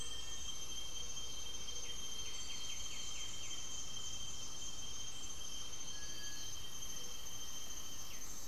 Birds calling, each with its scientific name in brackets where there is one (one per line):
Black-faced Antthrush (Formicarius analis)
White-winged Becard (Pachyramphus polychopterus)
unidentified bird
Gray-fronted Dove (Leptotila rufaxilla)
Cinereous Tinamou (Crypturellus cinereus)